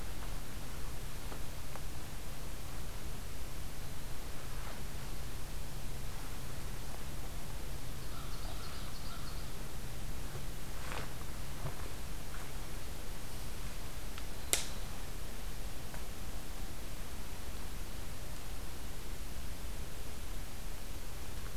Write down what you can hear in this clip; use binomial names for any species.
Corvus brachyrhynchos, Seiurus aurocapilla